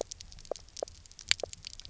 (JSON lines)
{"label": "biophony, knock croak", "recorder": "SoundTrap 300"}